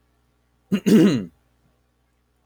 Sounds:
Throat clearing